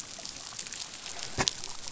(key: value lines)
label: biophony
recorder: SoundTrap 500